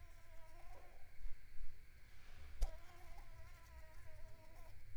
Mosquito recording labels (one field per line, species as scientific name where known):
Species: Mansonia africanus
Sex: female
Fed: unfed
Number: one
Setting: cup